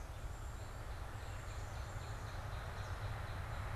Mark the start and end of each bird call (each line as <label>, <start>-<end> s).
Northern Cardinal (Cardinalis cardinalis), 0.0-3.7 s
Black-capped Chickadee (Poecile atricapillus), 0.1-2.6 s